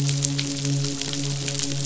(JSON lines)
{"label": "biophony, midshipman", "recorder": "SoundTrap 500"}